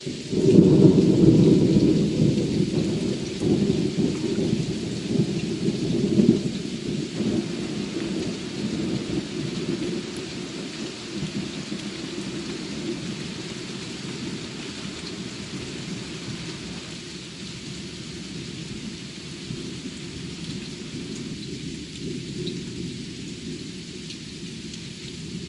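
0.0s Thunder fades in and echoes. 11.8s
0.0s Rain hitting the ground. 25.5s

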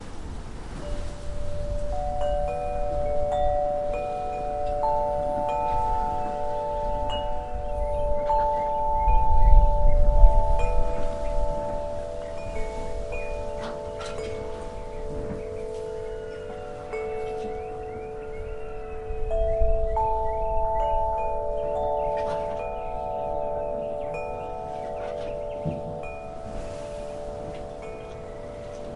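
0.0s A few birds chirp softly in the background. 29.0s
0.0s Chimes play melodically outdoors. 29.0s
0.0s Wind lightly breezing. 29.0s

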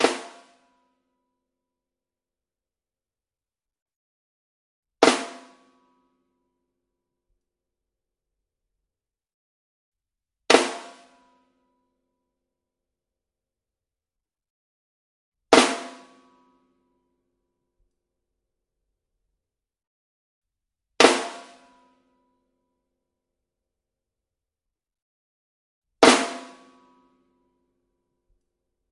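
0.0s Two drum hits. 0.5s
4.9s Two drum hits. 5.4s
10.4s Two drum hits. 10.8s
15.4s Two drum hits. 15.9s
20.9s Two drum hits. 21.3s
25.9s Two drum hits. 26.4s

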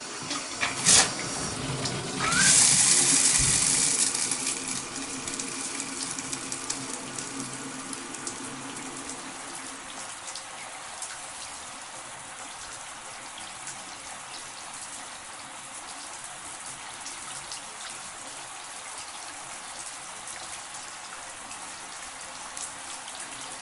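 0.0s White noise indoors. 23.6s
0.5s A shower is turned on loudly. 1.4s
2.1s Heavy drops of water falling from a showerhead. 5.0s
5.0s Gentle water dripping sounds continuing without pause. 23.6s

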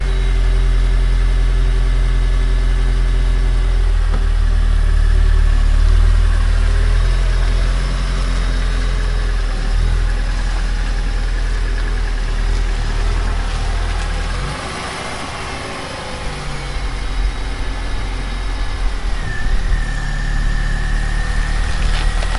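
0.0s An engine idles with a steady hum. 4.0s
4.0s An engine noise of a slowly moving car varies in speed and intensity. 22.4s
14.5s An engine revs with increasing RPM. 17.2s
21.7s Rubber creaks as tires move over rugged ground, with friction and surface contact sounds. 22.4s

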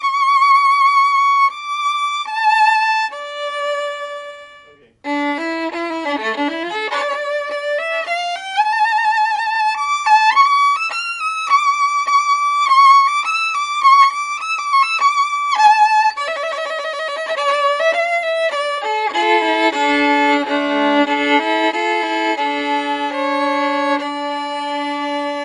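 0.0s A violin plays a rhythmic sound. 25.4s

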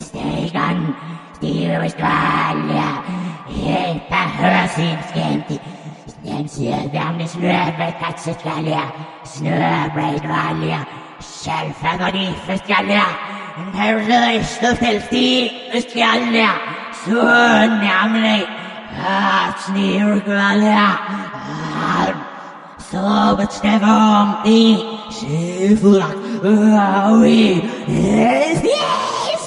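0.0s A woman speaking gibberish in a distorted, demonic voice. 29.5s

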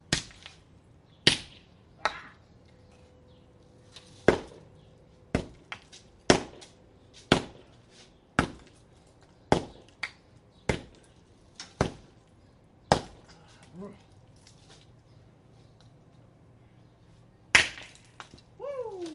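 0.1s Someone is hammering stones. 0.3s
1.2s Someone is hammering stones. 2.2s
4.2s Someone is hammering stones. 4.5s
5.3s Someone is hammering stones. 5.5s
6.3s Someone is hammering stones. 6.5s
7.3s Someone is hammering stones. 7.5s
8.3s Someone is hammering stones. 8.6s
9.5s Someone is hammering stones. 9.7s
10.6s Someone is hammering stones. 10.8s
11.7s Someone is hammering stones. 12.0s
12.9s Someone is hammering stones. 13.1s
13.7s A man is making noise. 14.0s
17.5s A stone shatters. 17.9s
18.6s A man is shouting joyfully. 19.1s

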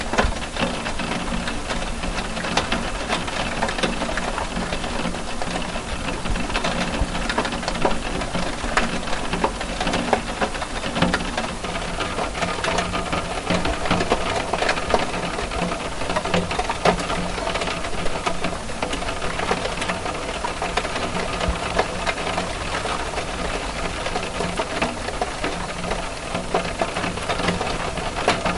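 0.0s Rain ticking on a skylight. 28.6s

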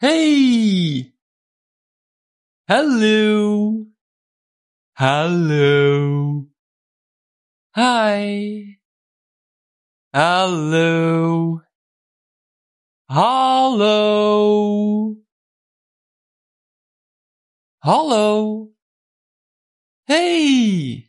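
0.0s A man is speaking. 1.1s
2.7s Man speaking. 3.8s
5.0s Man speaking. 6.5s
7.8s A man is speaking. 8.7s
10.1s Man speaking. 11.6s
13.1s Man speaking. 15.2s
17.9s Man speaking. 18.7s
20.1s A man is speaking. 21.1s

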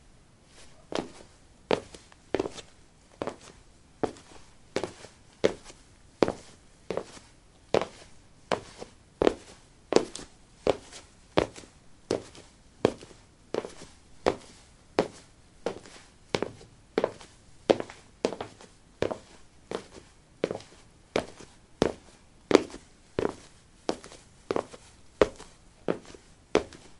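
0.0s Even, rhythmic footsteps. 27.0s

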